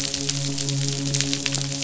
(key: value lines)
label: biophony, midshipman
recorder: SoundTrap 500